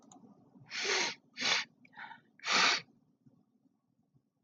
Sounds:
Sniff